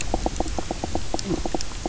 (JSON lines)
{"label": "biophony, knock croak", "recorder": "SoundTrap 300"}